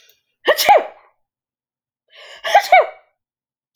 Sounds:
Sneeze